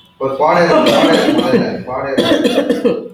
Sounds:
Cough